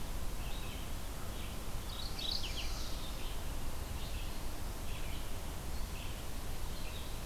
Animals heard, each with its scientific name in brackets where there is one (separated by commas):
Mourning Warbler (Geothlypis philadelphia), Chestnut-sided Warbler (Setophaga pensylvanica), Red-eyed Vireo (Vireo olivaceus)